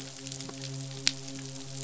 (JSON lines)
{"label": "biophony, midshipman", "recorder": "SoundTrap 500"}